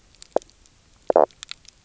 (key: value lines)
label: biophony, knock croak
recorder: SoundTrap 300